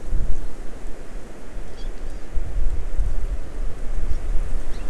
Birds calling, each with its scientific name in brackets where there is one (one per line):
Hawaii Amakihi (Chlorodrepanis virens)